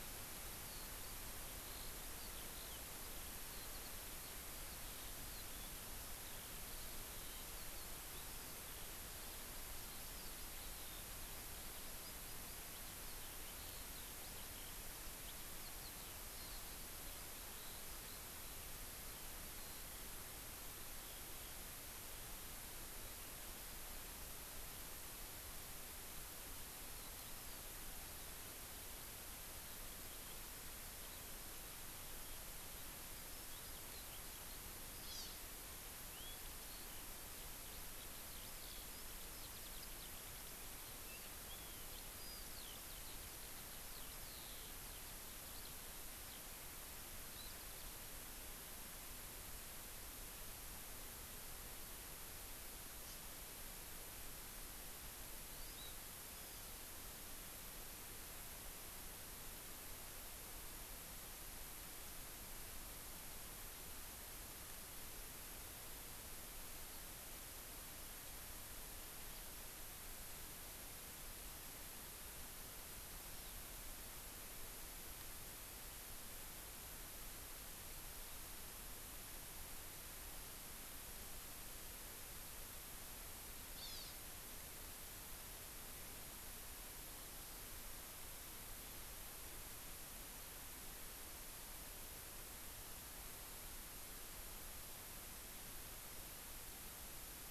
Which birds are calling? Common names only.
Eurasian Skylark, Hawaii Amakihi